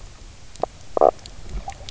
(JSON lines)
{"label": "biophony, knock croak", "recorder": "SoundTrap 300"}